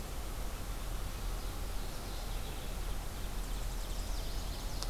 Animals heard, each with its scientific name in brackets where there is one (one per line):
Mourning Warbler (Geothlypis philadelphia)
Ovenbird (Seiurus aurocapilla)
Chestnut-sided Warbler (Setophaga pensylvanica)